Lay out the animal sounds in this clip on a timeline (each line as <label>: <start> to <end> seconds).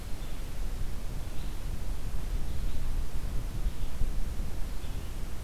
Red-eyed Vireo (Vireo olivaceus): 0.1 to 5.4 seconds